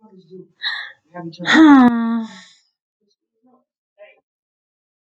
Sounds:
Sigh